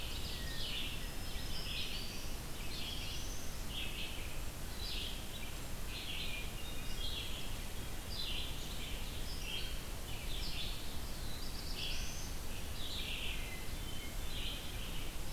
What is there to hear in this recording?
Ovenbird, Red-eyed Vireo, Hermit Thrush, Black-throated Green Warbler, Black-throated Blue Warbler